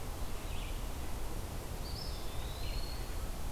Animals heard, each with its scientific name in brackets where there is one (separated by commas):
Eastern Wood-Pewee (Contopus virens), Red-eyed Vireo (Vireo olivaceus)